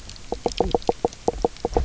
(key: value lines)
label: biophony, knock croak
recorder: SoundTrap 300